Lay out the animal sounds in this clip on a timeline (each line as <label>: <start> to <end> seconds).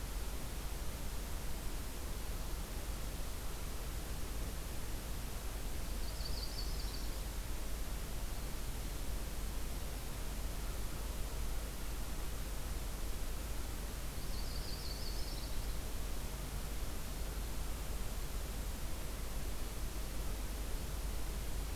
Yellow-rumped Warbler (Setophaga coronata): 5.7 to 7.3 seconds
Black-and-white Warbler (Mniotilta varia): 6.0 to 7.4 seconds
Yellow-rumped Warbler (Setophaga coronata): 14.0 to 15.8 seconds